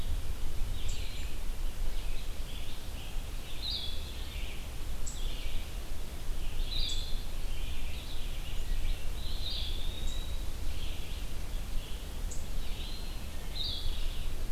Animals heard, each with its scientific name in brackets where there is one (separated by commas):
Blue-headed Vireo (Vireo solitarius), Eastern Wood-Pewee (Contopus virens), Red-eyed Vireo (Vireo olivaceus)